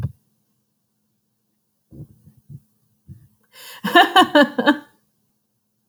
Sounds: Laughter